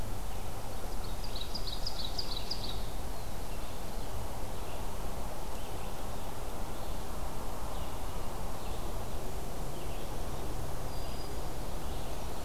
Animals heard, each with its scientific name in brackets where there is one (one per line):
Black-throated Green Warbler (Setophaga virens)
Red-eyed Vireo (Vireo olivaceus)
Black-throated Blue Warbler (Setophaga caerulescens)
Ovenbird (Seiurus aurocapilla)